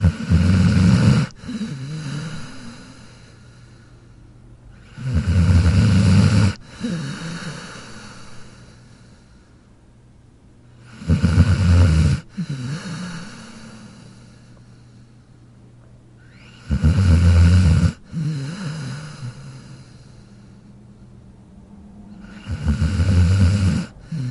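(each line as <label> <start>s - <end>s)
Snoring. 0.0s - 3.2s
Snoring. 5.0s - 8.8s
Snoring. 10.9s - 14.4s
Snoring. 16.6s - 20.3s
Snoring. 22.5s - 24.3s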